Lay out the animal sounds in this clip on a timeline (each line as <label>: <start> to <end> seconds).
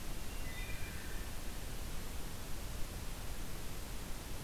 Wood Thrush (Hylocichla mustelina): 0.2 to 1.6 seconds